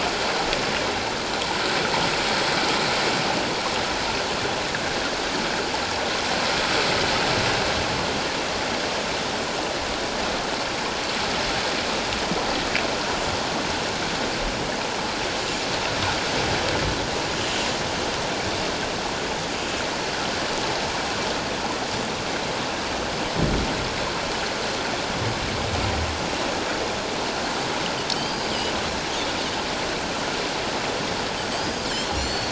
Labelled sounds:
28.2	28.5	Pacific white-sided dolphin, 4.6 to 4.9 kHz
31.5	32.5	Pacific white-sided dolphin, 4.2 to 7.5 kHz

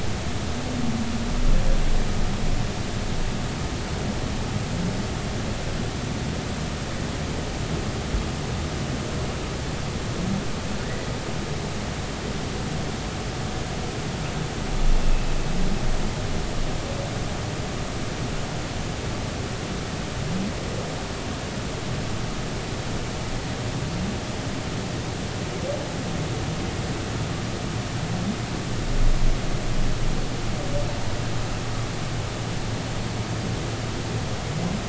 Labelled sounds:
10.8	11.1	humpback whale, 1.7 to 2.1 kHz

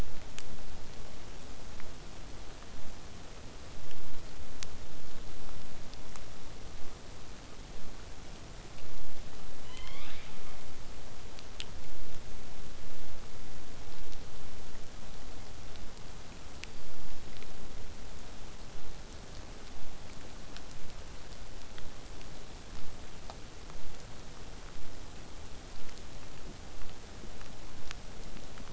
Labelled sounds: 9.6	10.5	killer whale, southern resident, J pod, call S12, 0.81 to 6.0 kHz
23.7	28.7	vessel noise, 0 to 8.0 kHz

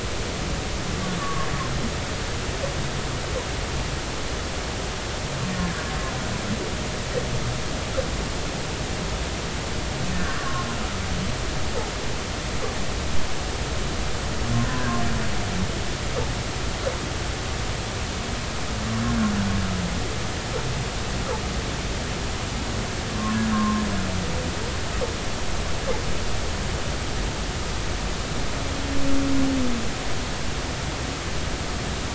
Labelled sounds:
1.2	1.5	humpback whale, 1.0 to 1.2 kHz
5.5	5.8	humpback whale, 1.6 to 1.9 kHz
10.1	10.7	humpback whale, 1.0 to 1.9 kHz
23.1	23.8	humpback whale, 0.99 to 1.2 kHz

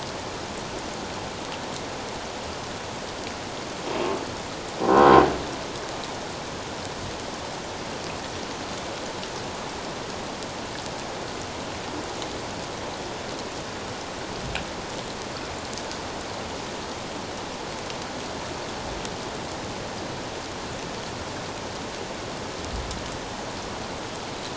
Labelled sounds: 4.8	5.1	croaking sound likely from a nearby submerged object, 0.94 to 1.1 kHz

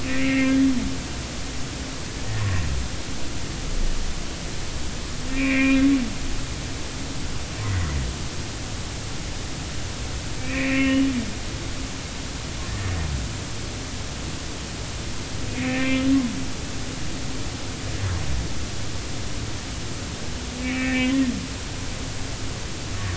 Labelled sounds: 0.0	0.5	humpback whale, 1.8 to 2.8 kHz
5.3	5.6	humpback whale, 2.6 to 2.8 kHz
6.3	6.8	humpback whale, 1.8 to 2.6 kHz
10.4	11.0	humpback whale, 1.0 to 3.0 kHz
15.5	16.0	humpback whale, 1.0 to 2.7 kHz
20.6	21.1	humpback whale, 1.8 to 2.6 kHz

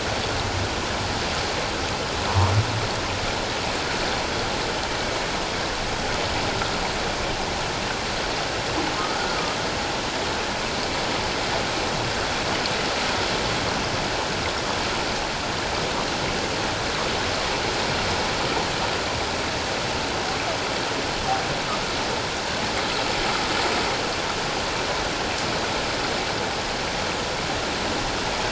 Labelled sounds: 2.3	2.5	humpback whale, 0.88 to 1.2 kHz

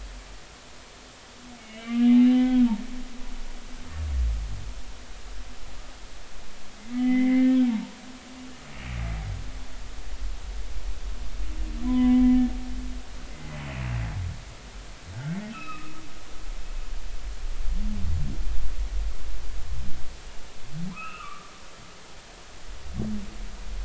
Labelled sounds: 1.6	2.7	humpback whale, 0.80 to 3.4 kHz
6.9	7.9	humpback whale, 0.86 to 3.1 kHz
11.8	12.3	humpback whale, 0.93 to 2.1 kHz
13.3	13.6	humpback whale, 2.0 to 2.1 kHz
15.5	15.9	humpback whale, 1.2 to 2.8 kHz
20.9	21.5	humpback whale, 0.96 to 2.9 kHz

